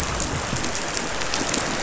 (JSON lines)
{"label": "anthrophony, boat engine", "recorder": "SoundTrap 500"}